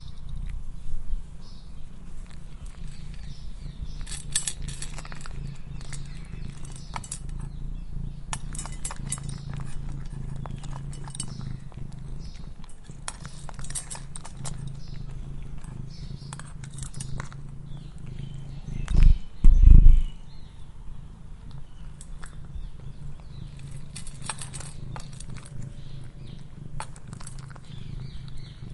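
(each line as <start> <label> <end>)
0.0 A cat is purring. 28.7
3.9 Clinking sound of metallic pieces. 5.2
4.3 Repeated crackling sounds of a cat eating. 18.7
5.3 Repeated metallic clinging sound. 18.8
18.7 A cat purrs loudly. 20.2
20.1 Crackling sounds of a cat eating. 28.7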